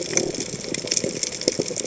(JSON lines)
{"label": "biophony", "recorder": "HydroMoth"}